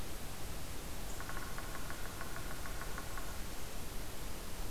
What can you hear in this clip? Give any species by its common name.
unknown woodpecker